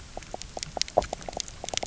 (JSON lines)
{"label": "biophony, knock croak", "recorder": "SoundTrap 300"}